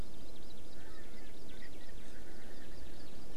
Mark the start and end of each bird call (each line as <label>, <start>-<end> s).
Hawaii Amakihi (Chlorodrepanis virens), 0.0-2.0 s
Erckel's Francolin (Pternistis erckelii), 0.7-3.0 s